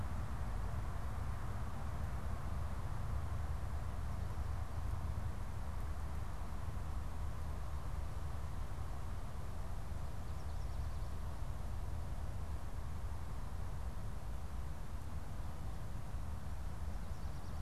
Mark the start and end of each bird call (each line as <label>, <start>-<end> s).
Yellow Warbler (Setophaga petechia), 10.1-11.5 s